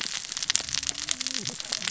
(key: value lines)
label: biophony, cascading saw
recorder: SoundTrap 600 or HydroMoth